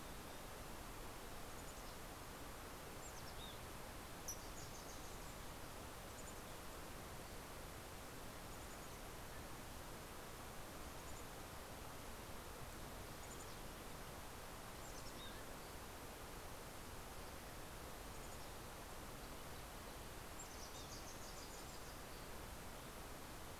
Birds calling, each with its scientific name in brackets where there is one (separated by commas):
Mountain Chickadee (Poecile gambeli), Wilson's Warbler (Cardellina pusilla)